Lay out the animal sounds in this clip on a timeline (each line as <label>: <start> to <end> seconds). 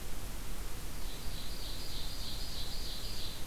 Ovenbird (Seiurus aurocapilla): 1.0 to 3.5 seconds